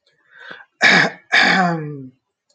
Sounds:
Throat clearing